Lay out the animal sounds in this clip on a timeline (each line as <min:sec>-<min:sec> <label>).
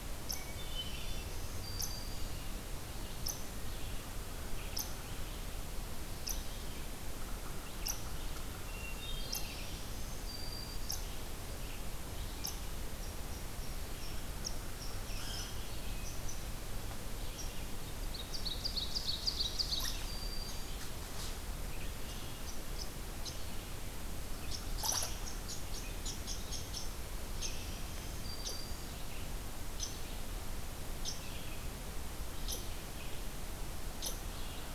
0:00.0-0:34.3 unknown mammal
0:00.0-0:34.7 Red-eyed Vireo (Vireo olivaceus)
0:00.3-0:01.4 Hermit Thrush (Catharus guttatus)
0:00.7-0:02.4 Black-throated Green Warbler (Setophaga virens)
0:08.5-0:09.6 Hermit Thrush (Catharus guttatus)
0:09.2-0:11.1 Black-throated Green Warbler (Setophaga virens)
0:18.0-0:20.1 Ovenbird (Seiurus aurocapilla)
0:19.5-0:20.8 Black-throated Green Warbler (Setophaga virens)
0:27.5-0:29.1 Black-throated Green Warbler (Setophaga virens)